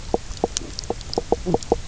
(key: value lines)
label: biophony, knock croak
recorder: SoundTrap 300